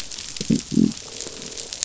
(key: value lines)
label: biophony, croak
recorder: SoundTrap 500

label: biophony
recorder: SoundTrap 500